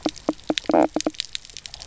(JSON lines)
{"label": "biophony, knock croak", "recorder": "SoundTrap 300"}